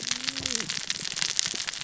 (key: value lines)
label: biophony, cascading saw
recorder: SoundTrap 600 or HydroMoth